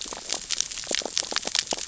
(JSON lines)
{"label": "biophony, sea urchins (Echinidae)", "recorder": "SoundTrap 600 or HydroMoth"}